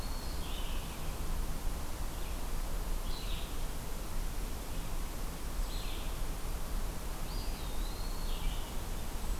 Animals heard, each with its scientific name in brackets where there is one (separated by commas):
Red-eyed Vireo (Vireo olivaceus), Hermit Thrush (Catharus guttatus), Eastern Wood-Pewee (Contopus virens)